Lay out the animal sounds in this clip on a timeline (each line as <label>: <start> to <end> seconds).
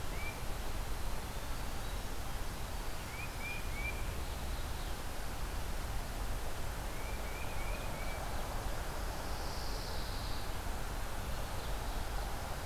Tufted Titmouse (Baeolophus bicolor): 0.0 to 0.5 seconds
Winter Wren (Troglodytes hiemalis): 0.1 to 5.3 seconds
Tufted Titmouse (Baeolophus bicolor): 2.7 to 4.5 seconds
Tufted Titmouse (Baeolophus bicolor): 6.7 to 8.3 seconds
Pine Warbler (Setophaga pinus): 9.0 to 10.6 seconds
Ovenbird (Seiurus aurocapilla): 11.0 to 12.5 seconds